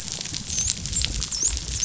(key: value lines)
label: biophony, dolphin
recorder: SoundTrap 500